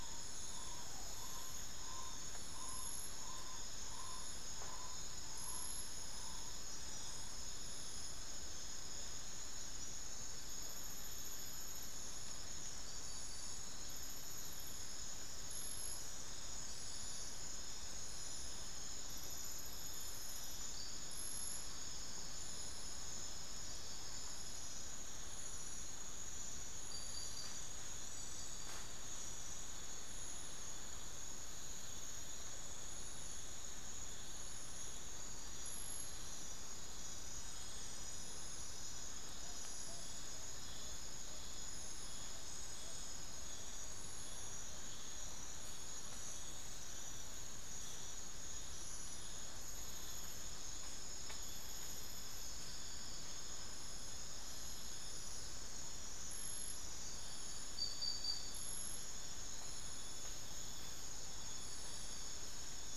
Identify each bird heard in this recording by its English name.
Tawny-bellied Screech-Owl